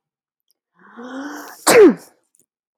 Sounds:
Sneeze